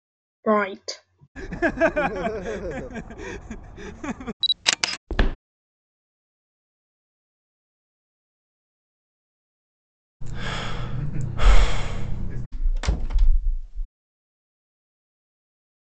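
At 0.46 seconds, someone says "Right." After that, at 1.35 seconds, laughter can be heard. Afterwards, at 4.4 seconds, the sound of a camera is heard. Following that, at 5.07 seconds, footsteps are audible. Later, at 10.2 seconds, someone sighs. Finally, at 12.52 seconds, a wooden door closes.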